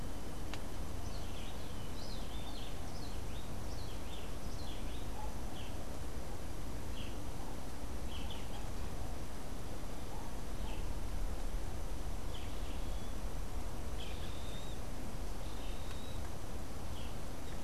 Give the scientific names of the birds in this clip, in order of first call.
Cantorchilus modestus, Megarynchus pitangua